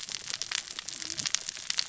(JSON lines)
{"label": "biophony, cascading saw", "recorder": "SoundTrap 600 or HydroMoth"}